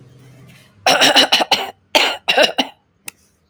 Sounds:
Throat clearing